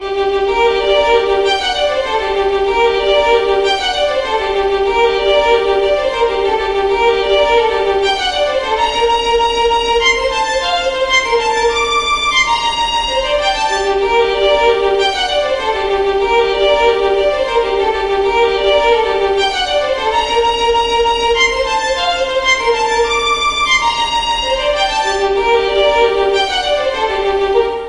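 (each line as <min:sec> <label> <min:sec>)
0:00.0 A person plays a fast, intense melody on a violin. 0:27.9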